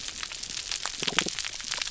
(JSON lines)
{"label": "biophony", "recorder": "SoundTrap 300"}